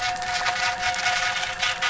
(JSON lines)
{"label": "anthrophony, boat engine", "recorder": "SoundTrap 500"}